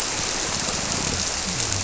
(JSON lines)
{"label": "biophony", "recorder": "SoundTrap 300"}